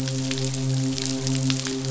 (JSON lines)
{"label": "biophony, midshipman", "recorder": "SoundTrap 500"}